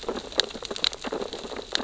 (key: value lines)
label: biophony, sea urchins (Echinidae)
recorder: SoundTrap 600 or HydroMoth